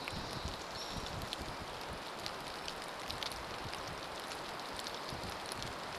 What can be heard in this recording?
Hairy Woodpecker call, Pacific Wren song, rain